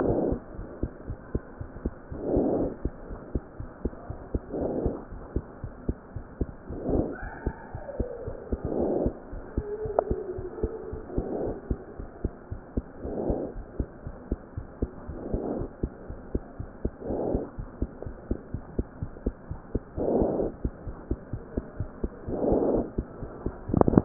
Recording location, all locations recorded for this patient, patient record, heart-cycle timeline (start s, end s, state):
pulmonary valve (PV)
aortic valve (AV)+pulmonary valve (PV)+tricuspid valve (TV)+mitral valve (MV)
#Age: Child
#Sex: Male
#Height: 90.0 cm
#Weight: 13.9 kg
#Pregnancy status: False
#Murmur: Absent
#Murmur locations: nan
#Most audible location: nan
#Systolic murmur timing: nan
#Systolic murmur shape: nan
#Systolic murmur grading: nan
#Systolic murmur pitch: nan
#Systolic murmur quality: nan
#Diastolic murmur timing: nan
#Diastolic murmur shape: nan
#Diastolic murmur grading: nan
#Diastolic murmur pitch: nan
#Diastolic murmur quality: nan
#Outcome: Normal
#Campaign: 2015 screening campaign
0.00	17.44	unannotated
17.44	17.56	diastole
17.56	17.64	S1
17.64	17.79	systole
17.79	17.88	S2
17.88	18.05	diastole
18.05	18.14	S1
18.14	18.29	systole
18.29	18.40	S2
18.40	18.53	diastole
18.53	18.62	S1
18.62	18.77	systole
18.77	18.86	S2
18.86	19.01	diastole
19.01	19.10	S1
19.10	19.25	systole
19.25	19.36	S2
19.36	19.49	diastole
19.49	19.58	S1
19.58	19.73	systole
19.73	19.82	S2
19.82	19.96	diastole
19.96	20.03	S1
20.03	20.62	unannotated
20.62	20.72	S2
20.72	20.84	diastole
20.84	20.92	S1
20.92	21.10	systole
21.10	21.18	S2
21.18	21.32	diastole
21.32	21.40	S1
21.40	21.55	systole
21.55	21.62	S2
21.62	21.79	diastole
21.79	21.87	S1
21.87	22.00	systole
22.00	22.08	S2
22.08	22.26	diastole
22.26	22.32	S1
22.32	22.42	systole
22.42	22.46	S2
22.46	22.96	unannotated
22.96	23.06	S2
23.06	23.21	diastole
23.21	23.27	S1
23.27	23.43	systole
23.43	23.54	S2
23.54	23.67	diastole
23.67	23.74	S1
23.74	24.05	unannotated